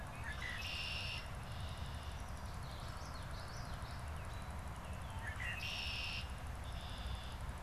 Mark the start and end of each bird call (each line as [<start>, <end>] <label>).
[0.00, 2.40] Red-winged Blackbird (Agelaius phoeniceus)
[2.10, 4.20] Common Yellowthroat (Geothlypis trichas)
[4.80, 7.60] Red-winged Blackbird (Agelaius phoeniceus)